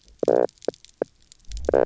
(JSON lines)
{"label": "biophony, knock croak", "recorder": "SoundTrap 300"}